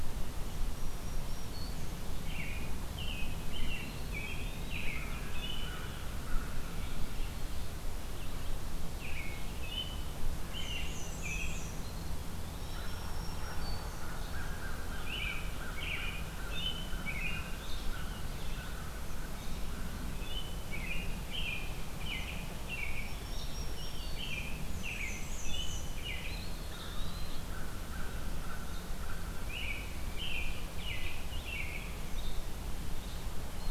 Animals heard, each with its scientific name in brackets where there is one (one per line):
American Crow (Corvus brachyrhynchos)
Eastern Wood-Pewee (Contopus virens)
Black-and-white Warbler (Mniotilta varia)
American Robin (Turdus migratorius)
Black-throated Green Warbler (Setophaga virens)